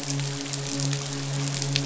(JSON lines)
{"label": "biophony, midshipman", "recorder": "SoundTrap 500"}